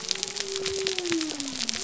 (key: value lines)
label: biophony
recorder: SoundTrap 300